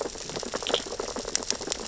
{"label": "biophony, sea urchins (Echinidae)", "recorder": "SoundTrap 600 or HydroMoth"}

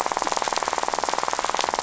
{"label": "biophony, rattle", "recorder": "SoundTrap 500"}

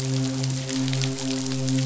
{"label": "biophony, midshipman", "recorder": "SoundTrap 500"}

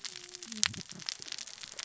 {"label": "biophony, cascading saw", "recorder": "SoundTrap 600 or HydroMoth"}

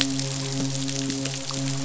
{"label": "biophony, midshipman", "recorder": "SoundTrap 500"}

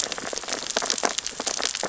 {"label": "biophony, sea urchins (Echinidae)", "recorder": "SoundTrap 600 or HydroMoth"}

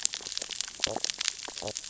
{"label": "biophony, sea urchins (Echinidae)", "recorder": "SoundTrap 600 or HydroMoth"}
{"label": "biophony, stridulation", "recorder": "SoundTrap 600 or HydroMoth"}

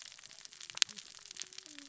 {"label": "biophony, cascading saw", "recorder": "SoundTrap 600 or HydroMoth"}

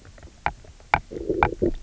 {"label": "biophony, low growl", "recorder": "SoundTrap 300"}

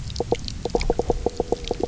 {"label": "biophony, knock croak", "recorder": "SoundTrap 300"}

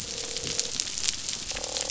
{"label": "biophony, croak", "recorder": "SoundTrap 500"}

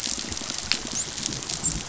{"label": "biophony, dolphin", "recorder": "SoundTrap 500"}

